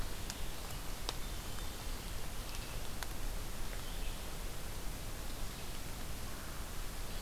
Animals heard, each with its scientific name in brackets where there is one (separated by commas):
American Crow (Corvus brachyrhynchos), Red-eyed Vireo (Vireo olivaceus)